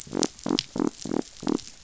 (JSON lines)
{"label": "biophony", "recorder": "SoundTrap 500"}